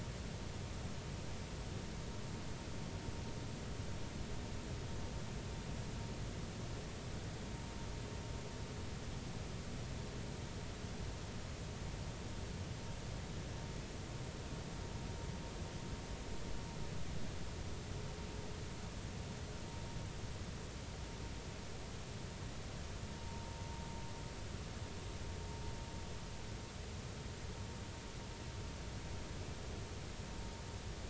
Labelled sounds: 23.2	23.5	vessel noise, 0.86 to 0.96 kHz

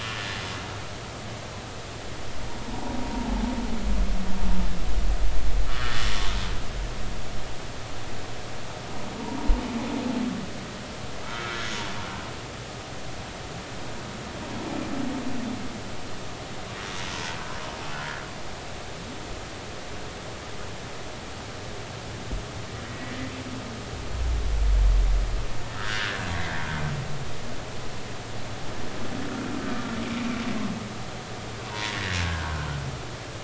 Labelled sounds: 3.1	3.4	humpback whale, 0.80 to 0.99 kHz
5.7	6.1	humpback whale, 1.2 to 2.0 kHz
11.2	11.6	humpback whale, 1.2 to 1.5 kHz
17.9	18.2	humpback whale, 1.6 to 1.8 kHz
22.8	23.1	humpback whale, 1.9 to 2.0 kHz
25.8	26.2	humpback whale, 1.2 to 1.9 kHz
30.1	30.4	humpback whale, 2.2 to 2.5 kHz
31.7	32.5	humpback whale, 0.80 to 2.0 kHz

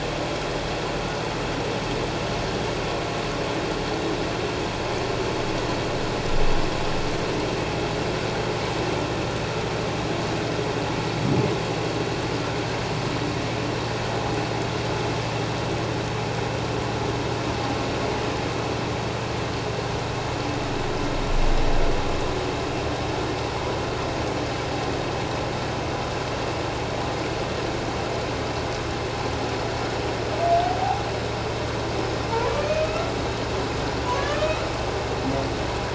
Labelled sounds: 32.5	33.1	humpback whale, 1.2 to 2.6 kHz
34.2	34.6	humpback whale, 1.6 to 2.6 kHz

